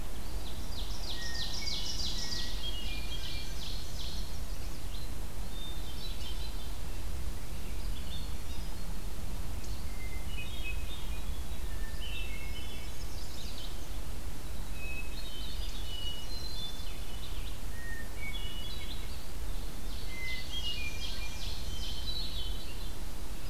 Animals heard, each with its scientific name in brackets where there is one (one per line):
Chestnut-sided Warbler (Setophaga pensylvanica)
Winter Wren (Troglodytes hiemalis)
Ovenbird (Seiurus aurocapilla)
Hermit Thrush (Catharus guttatus)